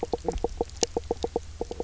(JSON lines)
{"label": "biophony, knock croak", "recorder": "SoundTrap 300"}